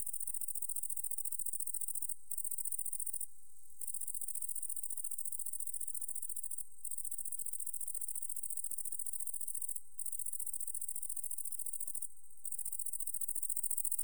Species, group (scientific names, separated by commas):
Tettigonia viridissima, Orthoptera